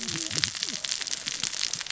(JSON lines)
{"label": "biophony, cascading saw", "recorder": "SoundTrap 600 or HydroMoth"}